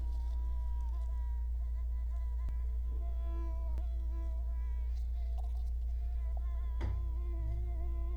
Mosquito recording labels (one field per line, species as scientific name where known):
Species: Culex quinquefasciatus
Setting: cup